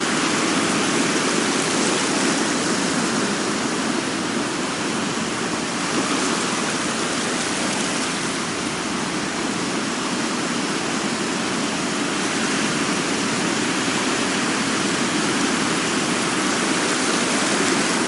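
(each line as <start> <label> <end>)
0.0 Sea waves hitting the shore loudly. 18.1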